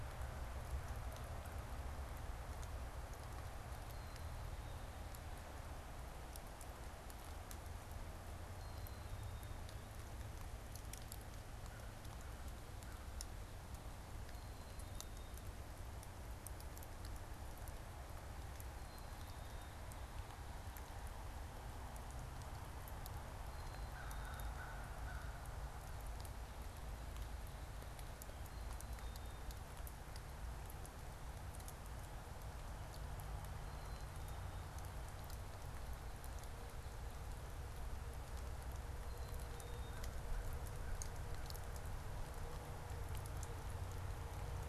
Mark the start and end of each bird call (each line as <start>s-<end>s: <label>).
3.7s-4.9s: Black-capped Chickadee (Poecile atricapillus)
8.4s-9.7s: Black-capped Chickadee (Poecile atricapillus)
11.3s-13.1s: American Crow (Corvus brachyrhynchos)
14.3s-15.5s: Black-capped Chickadee (Poecile atricapillus)
18.6s-19.8s: Black-capped Chickadee (Poecile atricapillus)
23.3s-24.6s: Black-capped Chickadee (Poecile atricapillus)
23.7s-25.5s: American Crow (Corvus brachyrhynchos)
27.8s-29.5s: Black-capped Chickadee (Poecile atricapillus)
33.3s-34.8s: Black-capped Chickadee (Poecile atricapillus)
38.9s-40.2s: Black-capped Chickadee (Poecile atricapillus)
39.6s-41.7s: American Crow (Corvus brachyrhynchos)